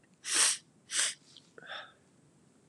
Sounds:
Sniff